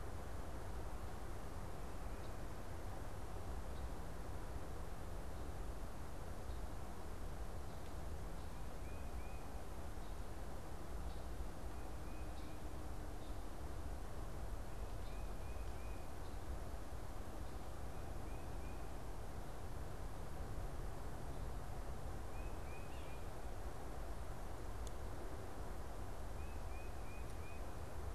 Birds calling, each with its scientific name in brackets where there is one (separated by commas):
Tufted Titmouse (Baeolophus bicolor)